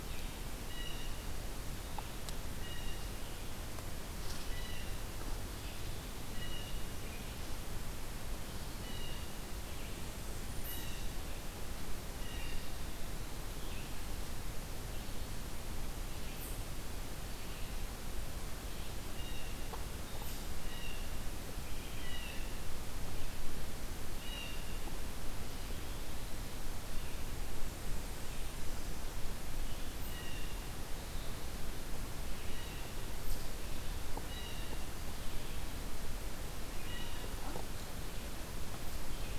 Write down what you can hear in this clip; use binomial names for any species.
Vireo olivaceus, Cyanocitta cristata, Setophaga fusca